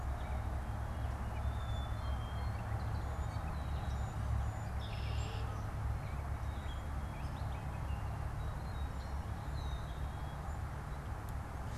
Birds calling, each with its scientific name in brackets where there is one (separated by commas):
Red-winged Blackbird (Agelaius phoeniceus), Black-capped Chickadee (Poecile atricapillus), Gray Catbird (Dumetella carolinensis)